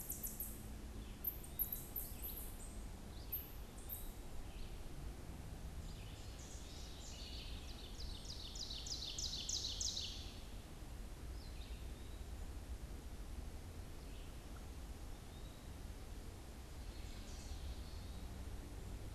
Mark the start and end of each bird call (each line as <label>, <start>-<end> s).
Eastern Wood-Pewee (Contopus virens), 1.0-7.3 s
Red-eyed Vireo (Vireo olivaceus), 1.7-6.5 s
House Wren (Troglodytes aedon), 6.1-7.7 s
Ovenbird (Seiurus aurocapilla), 7.3-10.5 s
Eastern Wood-Pewee (Contopus virens), 11.8-19.1 s